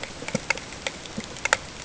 {"label": "ambient", "recorder": "HydroMoth"}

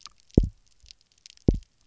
{"label": "biophony, double pulse", "recorder": "SoundTrap 300"}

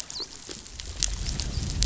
{"label": "biophony, dolphin", "recorder": "SoundTrap 500"}
{"label": "biophony", "recorder": "SoundTrap 500"}
{"label": "biophony, growl", "recorder": "SoundTrap 500"}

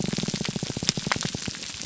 {"label": "biophony, pulse", "recorder": "SoundTrap 300"}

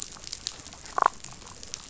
{"label": "biophony, damselfish", "recorder": "SoundTrap 500"}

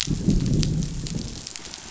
{"label": "biophony, growl", "recorder": "SoundTrap 500"}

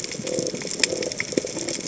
{"label": "biophony", "recorder": "HydroMoth"}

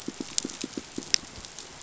{"label": "biophony, pulse", "recorder": "SoundTrap 500"}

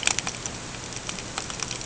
{"label": "ambient", "recorder": "HydroMoth"}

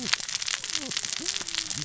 {"label": "biophony, cascading saw", "recorder": "SoundTrap 600 or HydroMoth"}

